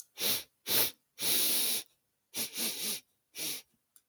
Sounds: Sniff